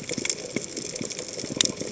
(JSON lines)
{"label": "biophony, chatter", "recorder": "HydroMoth"}